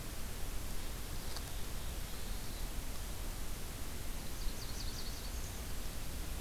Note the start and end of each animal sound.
[1.18, 2.79] Black-throated Blue Warbler (Setophaga caerulescens)
[4.21, 5.46] Nashville Warbler (Leiothlypis ruficapilla)

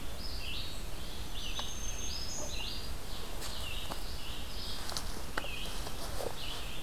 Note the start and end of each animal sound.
[0.09, 6.83] Red-eyed Vireo (Vireo olivaceus)
[0.92, 2.82] Black-throated Green Warbler (Setophaga virens)

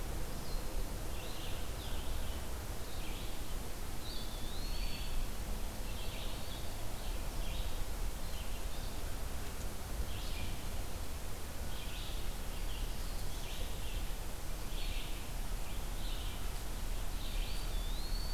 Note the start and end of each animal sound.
[0.00, 18.33] Red-eyed Vireo (Vireo olivaceus)
[3.92, 5.31] Eastern Wood-Pewee (Contopus virens)
[17.23, 18.33] Eastern Wood-Pewee (Contopus virens)

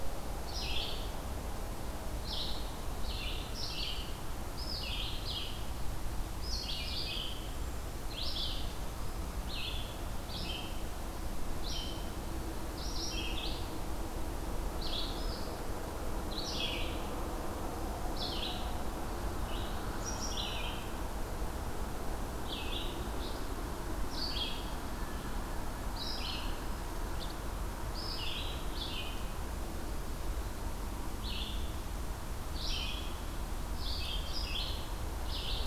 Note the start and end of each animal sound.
[0.00, 26.57] Red-eyed Vireo (Vireo olivaceus)
[27.07, 35.66] Red-eyed Vireo (Vireo olivaceus)

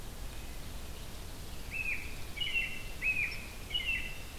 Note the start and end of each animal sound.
[0.00, 4.38] Blue-headed Vireo (Vireo solitarius)
[0.00, 4.38] Red-eyed Vireo (Vireo olivaceus)
[1.32, 2.68] Pine Warbler (Setophaga pinus)
[1.42, 4.38] American Robin (Turdus migratorius)

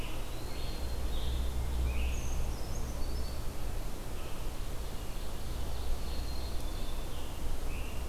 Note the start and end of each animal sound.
[0.00, 1.10] Eastern Wood-Pewee (Contopus virens)
[0.00, 2.28] Scarlet Tanager (Piranga olivacea)
[2.02, 3.61] Brown Creeper (Certhia americana)
[4.70, 7.02] Ovenbird (Seiurus aurocapilla)
[5.79, 7.20] Black-capped Chickadee (Poecile atricapillus)

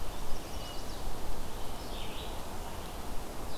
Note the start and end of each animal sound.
[0.00, 1.23] Chestnut-sided Warbler (Setophaga pensylvanica)
[0.00, 3.58] Red-eyed Vireo (Vireo olivaceus)

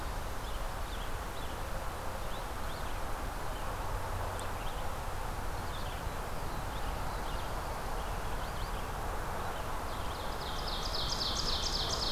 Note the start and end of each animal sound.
[0.00, 12.12] Red-eyed Vireo (Vireo olivaceus)
[10.20, 12.12] Ovenbird (Seiurus aurocapilla)

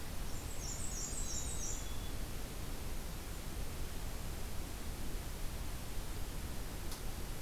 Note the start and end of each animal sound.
[0.20, 1.99] Black-and-white Warbler (Mniotilta varia)
[1.15, 2.30] Black-capped Chickadee (Poecile atricapillus)

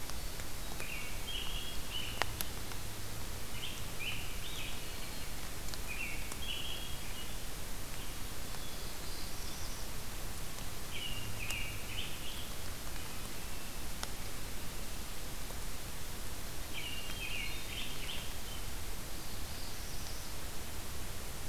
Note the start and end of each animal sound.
[0.00, 0.98] Hermit Thrush (Catharus guttatus)
[0.68, 2.31] American Robin (Turdus migratorius)
[3.51, 4.82] American Robin (Turdus migratorius)
[5.73, 7.50] American Robin (Turdus migratorius)
[8.26, 9.80] Hermit Thrush (Catharus guttatus)
[8.88, 9.88] Black-throated Blue Warbler (Setophaga caerulescens)
[10.82, 12.43] American Robin (Turdus migratorius)
[16.61, 18.40] American Robin (Turdus migratorius)
[17.00, 18.71] Hermit Thrush (Catharus guttatus)
[19.09, 20.39] Black-throated Blue Warbler (Setophaga caerulescens)

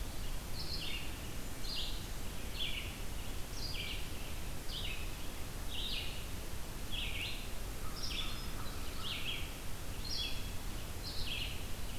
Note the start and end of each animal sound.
[0.00, 11.55] Red-eyed Vireo (Vireo olivaceus)
[7.69, 9.14] American Crow (Corvus brachyrhynchos)

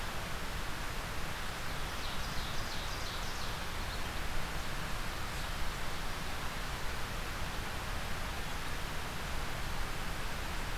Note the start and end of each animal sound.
[1.82, 3.61] Ovenbird (Seiurus aurocapilla)

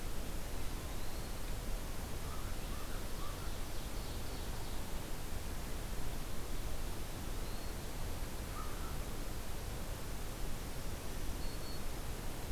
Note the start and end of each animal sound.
[0.55, 1.38] Eastern Wood-Pewee (Contopus virens)
[2.16, 3.56] American Crow (Corvus brachyrhynchos)
[3.22, 4.89] Ovenbird (Seiurus aurocapilla)
[7.03, 7.89] Eastern Wood-Pewee (Contopus virens)
[8.46, 8.92] American Crow (Corvus brachyrhynchos)
[11.07, 11.89] Black-throated Green Warbler (Setophaga virens)

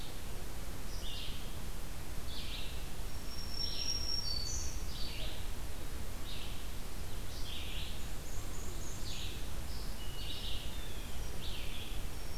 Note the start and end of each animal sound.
[0.00, 12.38] Red-eyed Vireo (Vireo olivaceus)
[3.06, 5.33] Black-throated Green Warbler (Setophaga virens)
[7.81, 9.57] Blackburnian Warbler (Setophaga fusca)
[10.07, 11.38] Blue Jay (Cyanocitta cristata)

